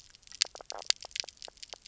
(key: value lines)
label: biophony, knock croak
recorder: SoundTrap 300